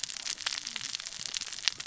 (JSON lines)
{"label": "biophony, cascading saw", "recorder": "SoundTrap 600 or HydroMoth"}